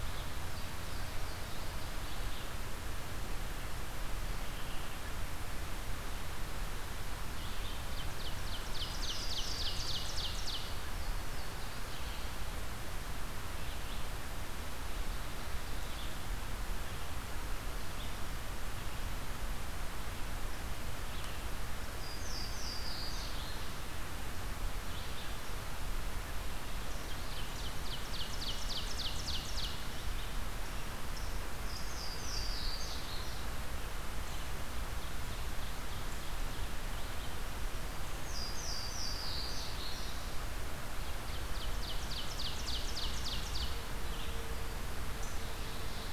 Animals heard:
unknown mammal, Red-eyed Vireo (Vireo olivaceus), Ovenbird (Seiurus aurocapilla), Louisiana Waterthrush (Parkesia motacilla)

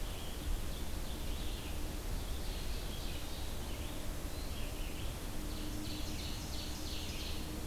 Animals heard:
Red-eyed Vireo (Vireo olivaceus), Ovenbird (Seiurus aurocapilla)

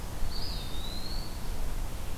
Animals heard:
Eastern Wood-Pewee (Contopus virens)

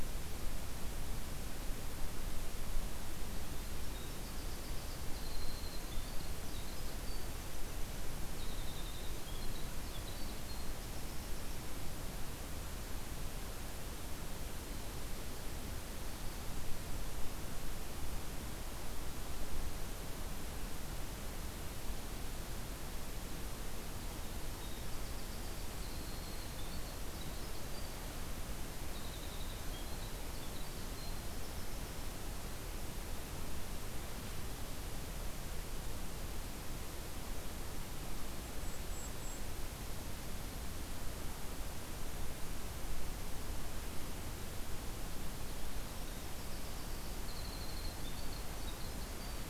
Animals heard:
Winter Wren (Troglodytes hiemalis), Golden-crowned Kinglet (Regulus satrapa)

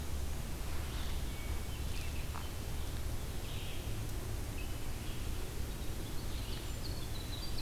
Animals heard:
Winter Wren (Troglodytes hiemalis), Hermit Thrush (Catharus guttatus), Red-eyed Vireo (Vireo olivaceus)

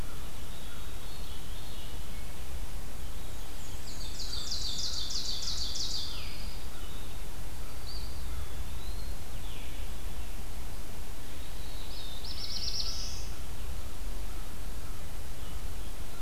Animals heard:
Pine Warbler (Setophaga pinus), Black-throated Blue Warbler (Setophaga caerulescens), Black-and-white Warbler (Mniotilta varia), Veery (Catharus fuscescens), Eastern Wood-Pewee (Contopus virens), Ovenbird (Seiurus aurocapilla)

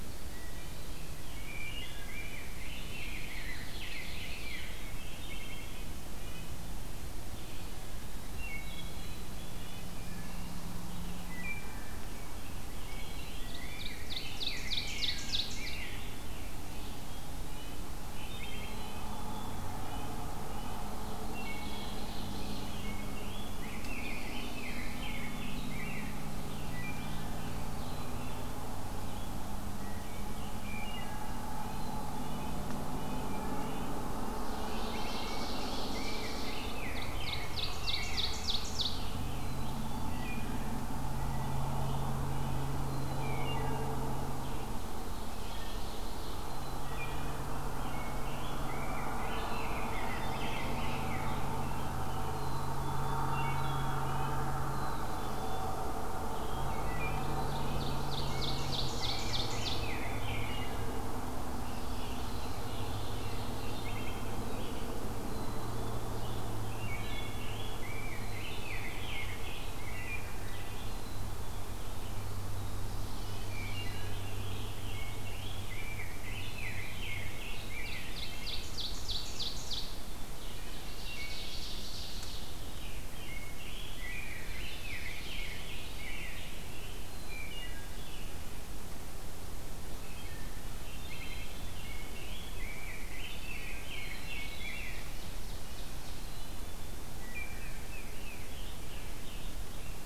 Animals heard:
Black-capped Chickadee (Poecile atricapillus), Rose-breasted Grosbeak (Pheucticus ludovicianus), Red-breasted Nuthatch (Sitta canadensis), Wood Thrush (Hylocichla mustelina), Ovenbird (Seiurus aurocapilla), Scarlet Tanager (Piranga olivacea)

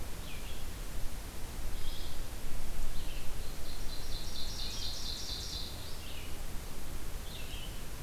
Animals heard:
Ovenbird (Seiurus aurocapilla), Red-eyed Vireo (Vireo olivaceus)

